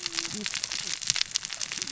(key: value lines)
label: biophony, cascading saw
recorder: SoundTrap 600 or HydroMoth